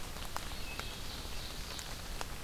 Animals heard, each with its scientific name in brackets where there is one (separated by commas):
Ovenbird (Seiurus aurocapilla), Wood Thrush (Hylocichla mustelina)